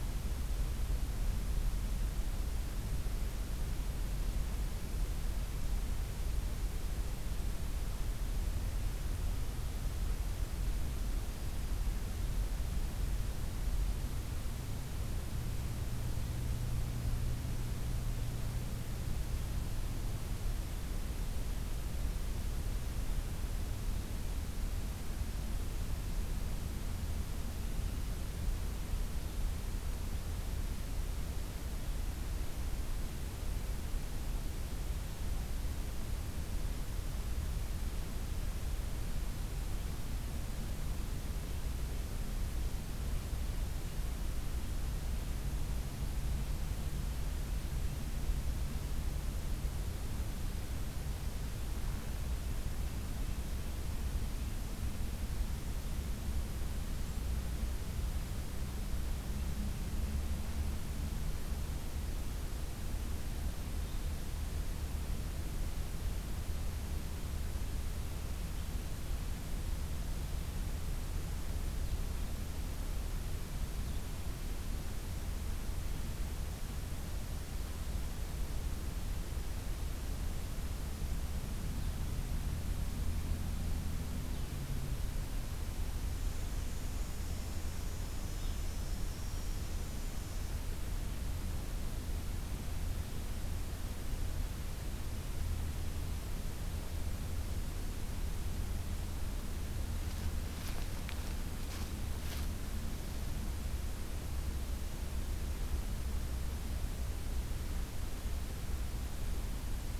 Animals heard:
forest ambience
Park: Acadia National Park